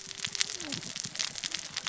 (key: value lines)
label: biophony, cascading saw
recorder: SoundTrap 600 or HydroMoth